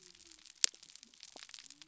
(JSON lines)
{"label": "biophony", "recorder": "SoundTrap 300"}